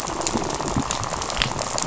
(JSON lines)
{"label": "biophony, rattle", "recorder": "SoundTrap 500"}